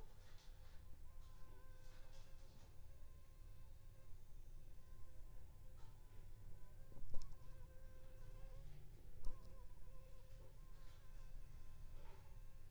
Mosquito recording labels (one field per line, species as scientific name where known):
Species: Anopheles funestus s.s.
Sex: female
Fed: unfed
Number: one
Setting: cup